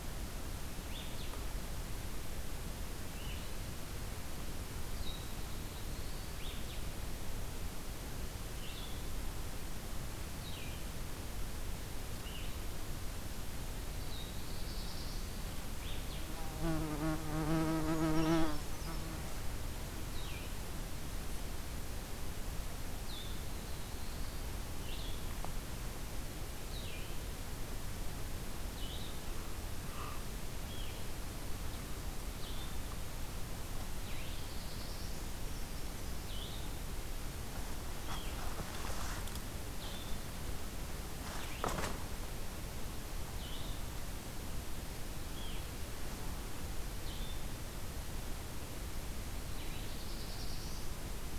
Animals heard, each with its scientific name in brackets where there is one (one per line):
Brown Creeper (Certhia americana)
Blue-headed Vireo (Vireo solitarius)
Black-throated Blue Warbler (Setophaga caerulescens)